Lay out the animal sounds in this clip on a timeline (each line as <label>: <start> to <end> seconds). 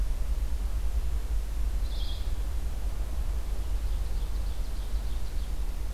Red-eyed Vireo (Vireo olivaceus): 1.6 to 2.6 seconds
Ovenbird (Seiurus aurocapilla): 3.4 to 5.8 seconds